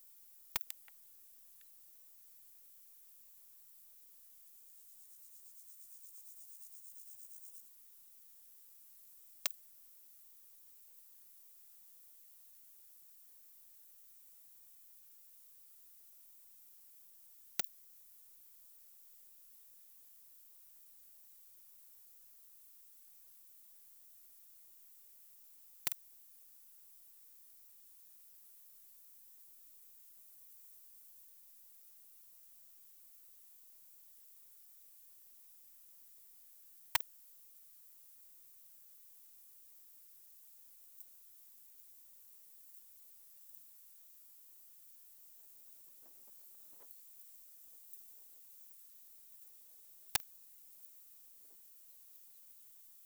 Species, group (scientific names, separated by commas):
Poecilimon jonicus, Orthoptera